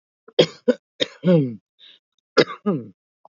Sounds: Cough